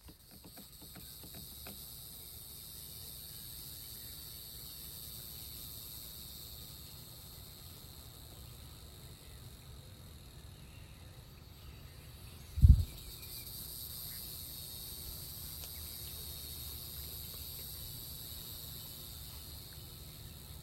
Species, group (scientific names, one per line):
Neocicada hieroglyphica
Cicadidae